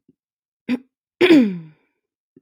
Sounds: Throat clearing